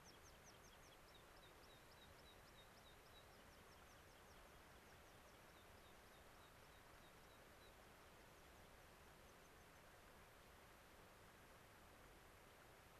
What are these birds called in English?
American Pipit